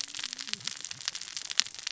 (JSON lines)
{"label": "biophony, cascading saw", "recorder": "SoundTrap 600 or HydroMoth"}